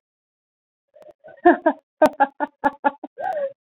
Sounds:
Laughter